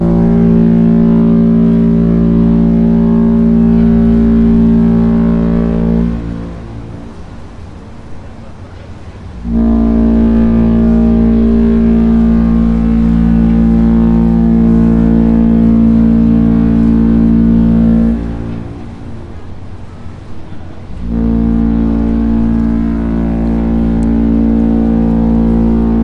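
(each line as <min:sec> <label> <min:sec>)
0:00.0 Ships in Hamburg honk loudly with a low-pitched, steady pattern and a few echoes. 0:07.4
0:00.0 Sea water flows softly in a steady, distant pattern. 0:26.0
0:09.4 Ships in Hamburg honk loudly with a low pitch in a steady pattern, accompanied by a few echoes. 0:19.1
0:21.0 Ships honk loudly with a low-pitched, steady pattern accompanied by a few echoes. 0:26.0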